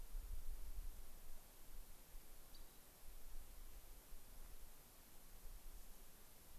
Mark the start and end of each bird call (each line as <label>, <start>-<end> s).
Rock Wren (Salpinctes obsoletus), 2.5-2.9 s